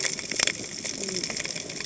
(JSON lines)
{"label": "biophony, cascading saw", "recorder": "HydroMoth"}